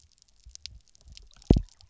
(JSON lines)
{"label": "biophony, double pulse", "recorder": "SoundTrap 300"}